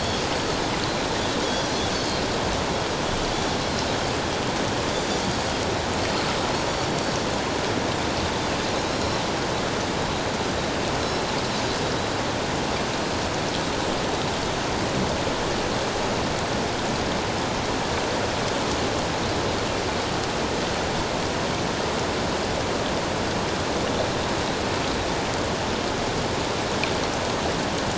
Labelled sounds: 1.4	2.2	Pacific white-sided dolphin, 3.3 to 4.6 kHz
8.9	9.2	Pacific white-sided dolphin, 3.9 to 5.6 kHz

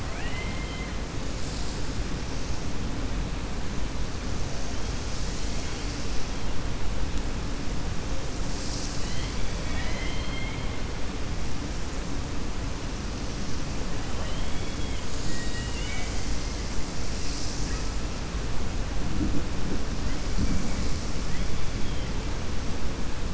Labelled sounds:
0.0	0.9	killer whale, 0.69 to 3.2 kHz
14.0	16.2	killer whale, 0.54 to 7.8 kHz

